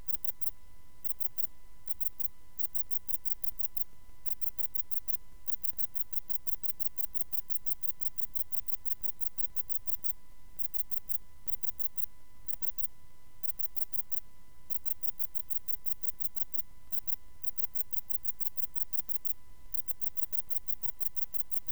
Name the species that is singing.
Sepiana sepium